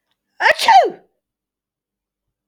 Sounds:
Sneeze